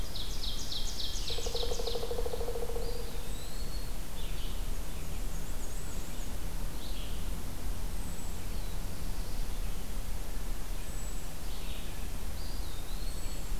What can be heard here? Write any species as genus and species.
Seiurus aurocapilla, Vireo olivaceus, unidentified call, Dryocopus pileatus, Contopus virens, Mniotilta varia